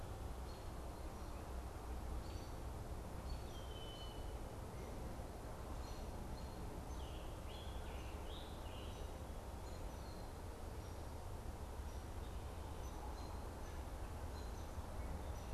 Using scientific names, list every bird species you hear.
Turdus migratorius, Agelaius phoeniceus, Piranga olivacea